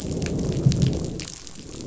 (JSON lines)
{"label": "biophony, growl", "recorder": "SoundTrap 500"}